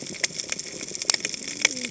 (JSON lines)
{"label": "biophony, cascading saw", "recorder": "HydroMoth"}